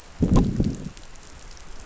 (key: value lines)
label: biophony, growl
recorder: SoundTrap 500